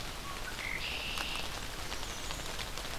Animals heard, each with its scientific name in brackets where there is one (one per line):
Blackburnian Warbler (Setophaga fusca)
Red-winged Blackbird (Agelaius phoeniceus)